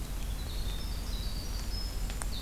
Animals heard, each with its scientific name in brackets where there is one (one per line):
Golden-crowned Kinglet (Regulus satrapa)
Winter Wren (Troglodytes hiemalis)